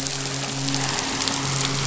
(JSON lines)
{"label": "anthrophony, boat engine", "recorder": "SoundTrap 500"}
{"label": "biophony, midshipman", "recorder": "SoundTrap 500"}